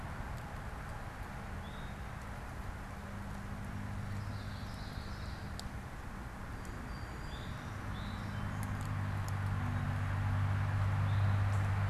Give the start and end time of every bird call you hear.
[1.50, 2.20] Eastern Towhee (Pipilo erythrophthalmus)
[4.00, 5.70] Common Yellowthroat (Geothlypis trichas)
[6.40, 8.80] Song Sparrow (Melospiza melodia)
[7.10, 11.80] Eastern Towhee (Pipilo erythrophthalmus)

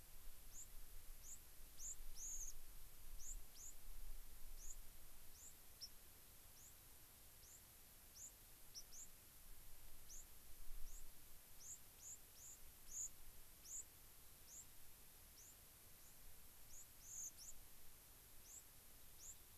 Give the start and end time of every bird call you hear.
[0.00, 14.65] White-crowned Sparrow (Zonotrichia leucophrys)
[15.35, 15.55] White-crowned Sparrow (Zonotrichia leucophrys)
[15.95, 16.25] White-crowned Sparrow (Zonotrichia leucophrys)
[16.65, 17.55] White-crowned Sparrow (Zonotrichia leucophrys)
[18.45, 18.65] White-crowned Sparrow (Zonotrichia leucophrys)
[19.15, 19.35] White-crowned Sparrow (Zonotrichia leucophrys)

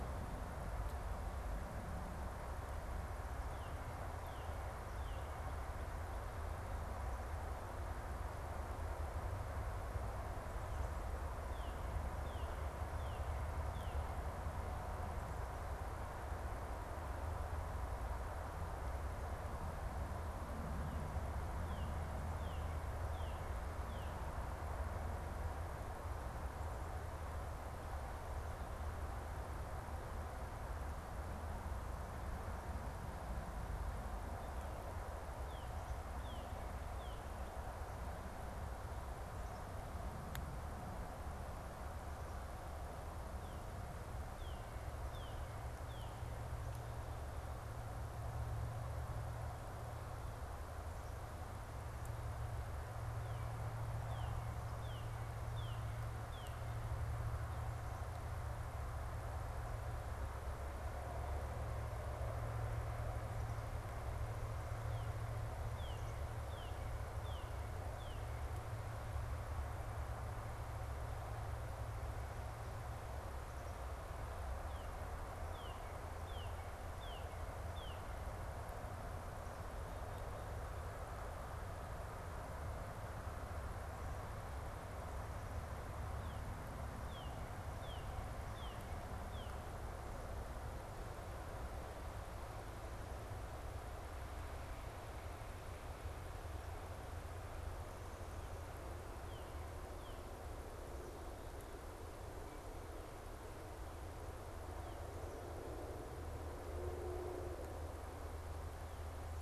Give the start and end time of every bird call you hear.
[3.19, 5.49] Northern Cardinal (Cardinalis cardinalis)
[11.19, 14.09] Northern Cardinal (Cardinalis cardinalis)
[21.39, 24.39] Northern Cardinal (Cardinalis cardinalis)
[35.09, 37.49] Northern Cardinal (Cardinalis cardinalis)
[43.19, 46.59] Northern Cardinal (Cardinalis cardinalis)
[52.69, 56.79] Northern Cardinal (Cardinalis cardinalis)
[64.79, 68.59] Northern Cardinal (Cardinalis cardinalis)
[74.49, 78.29] Northern Cardinal (Cardinalis cardinalis)
[86.09, 89.59] Northern Cardinal (Cardinalis cardinalis)
[98.99, 100.39] Northern Cardinal (Cardinalis cardinalis)

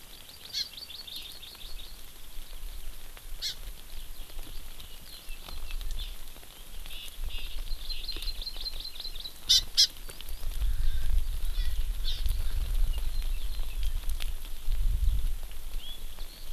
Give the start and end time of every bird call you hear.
[0.00, 2.00] Hawaii Amakihi (Chlorodrepanis virens)
[3.40, 3.50] Hawaii Amakihi (Chlorodrepanis virens)
[6.00, 6.10] Hawaii Amakihi (Chlorodrepanis virens)
[7.60, 9.90] Hawaii Amakihi (Chlorodrepanis virens)
[10.60, 13.10] Erckel's Francolin (Pternistis erckelii)

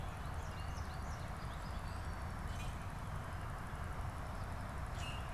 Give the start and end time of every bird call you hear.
[0.20, 2.30] American Goldfinch (Spinus tristis)
[2.50, 5.30] Common Grackle (Quiscalus quiscula)

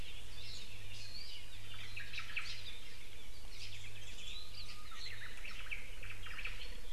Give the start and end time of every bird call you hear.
[1.87, 2.57] Omao (Myadestes obscurus)
[2.37, 2.67] Hawaii Creeper (Loxops mana)
[4.17, 4.57] Apapane (Himatione sanguinea)
[4.17, 5.37] Japanese Bush Warbler (Horornis diphone)
[5.27, 6.57] Omao (Myadestes obscurus)

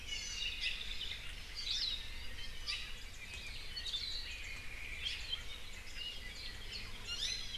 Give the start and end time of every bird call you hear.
[0.00, 0.60] Hawaii Amakihi (Chlorodrepanis virens)
[0.60, 0.80] Hawaii Creeper (Loxops mana)
[1.50, 2.10] Hawaii Akepa (Loxops coccineus)
[2.60, 2.90] Hawaii Creeper (Loxops mana)
[2.90, 4.60] Warbling White-eye (Zosterops japonicus)
[3.70, 4.50] Hawaii Akepa (Loxops coccineus)
[5.00, 6.00] Warbling White-eye (Zosterops japonicus)
[6.30, 6.90] Warbling White-eye (Zosterops japonicus)
[7.00, 7.50] Iiwi (Drepanis coccinea)

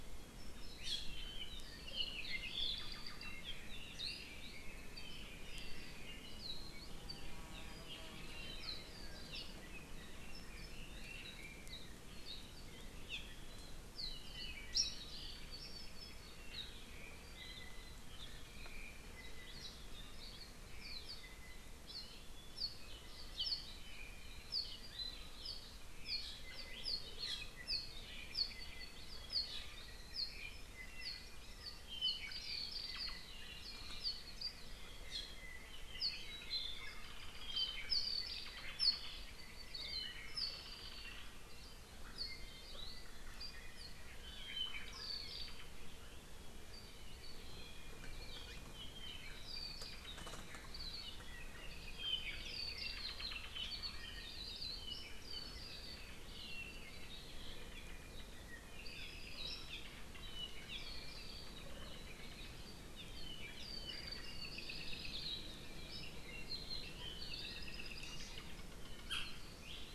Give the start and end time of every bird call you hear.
[1.11, 3.41] Apapane (Himatione sanguinea)
[9.31, 9.51] Iiwi (Drepanis coccinea)
[13.11, 13.21] Iiwi (Drepanis coccinea)
[13.91, 16.51] Apapane (Himatione sanguinea)
[30.71, 33.31] Apapane (Himatione sanguinea)
[35.51, 38.21] Apapane (Himatione sanguinea)
[39.71, 40.21] Hawaii Akepa (Loxops coccineus)
[50.71, 51.01] Hawaii Akepa (Loxops coccineus)
[51.61, 53.41] Apapane (Himatione sanguinea)
[54.21, 54.81] Hawaii Akepa (Loxops coccineus)
[58.71, 59.71] Apapane (Himatione sanguinea)
[59.71, 59.81] Iiwi (Drepanis coccinea)
[60.71, 60.81] Iiwi (Drepanis coccinea)
[62.91, 65.51] Apapane (Himatione sanguinea)
[67.21, 68.21] Apapane (Himatione sanguinea)

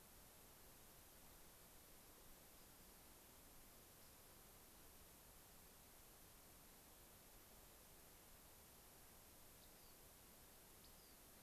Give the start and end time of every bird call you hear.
[2.41, 3.01] Rock Wren (Salpinctes obsoletus)
[9.51, 10.01] Rock Wren (Salpinctes obsoletus)
[10.71, 11.21] Rock Wren (Salpinctes obsoletus)

